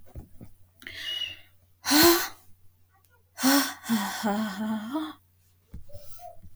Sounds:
Sigh